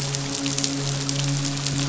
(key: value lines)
label: biophony, midshipman
recorder: SoundTrap 500